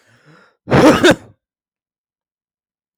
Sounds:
Sneeze